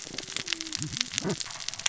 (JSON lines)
{"label": "biophony, cascading saw", "recorder": "SoundTrap 600 or HydroMoth"}